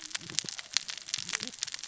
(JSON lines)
{"label": "biophony, cascading saw", "recorder": "SoundTrap 600 or HydroMoth"}